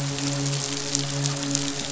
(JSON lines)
{"label": "biophony, midshipman", "recorder": "SoundTrap 500"}